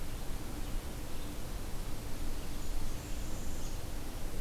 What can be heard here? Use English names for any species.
Northern Parula